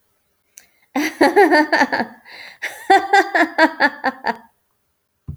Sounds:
Laughter